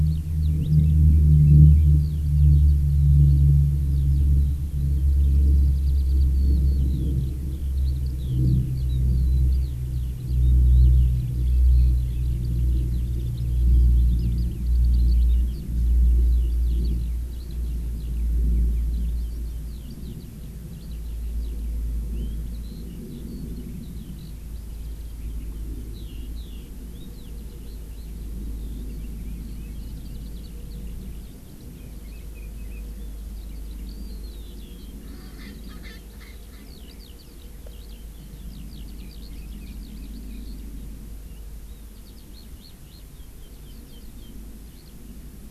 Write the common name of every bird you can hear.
Eurasian Skylark, Chinese Hwamei, Erckel's Francolin